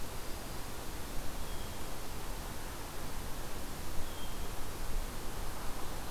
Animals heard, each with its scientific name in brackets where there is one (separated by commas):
Hermit Thrush (Catharus guttatus)